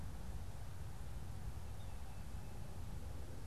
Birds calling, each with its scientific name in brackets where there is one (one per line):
Yellow-bellied Sapsucker (Sphyrapicus varius)